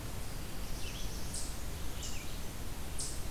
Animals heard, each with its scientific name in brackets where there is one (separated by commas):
Eastern Chipmunk (Tamias striatus), Black-throated Blue Warbler (Setophaga caerulescens), Red-eyed Vireo (Vireo olivaceus)